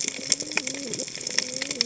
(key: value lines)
label: biophony, cascading saw
recorder: HydroMoth